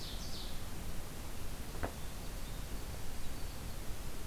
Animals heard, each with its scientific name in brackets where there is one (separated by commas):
Ovenbird (Seiurus aurocapilla), Winter Wren (Troglodytes hiemalis)